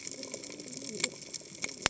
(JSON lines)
{"label": "biophony, cascading saw", "recorder": "HydroMoth"}